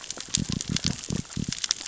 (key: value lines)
label: biophony
recorder: SoundTrap 600 or HydroMoth